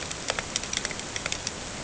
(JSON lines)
{"label": "ambient", "recorder": "HydroMoth"}